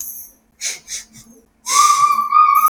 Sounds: Sniff